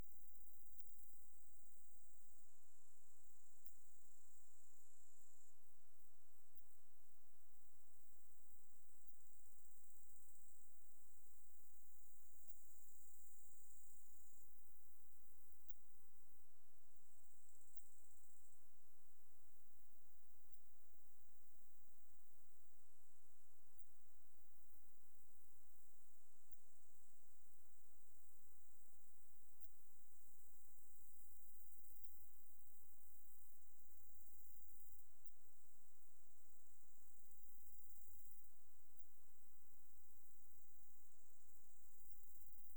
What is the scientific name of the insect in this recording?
Phaneroptera falcata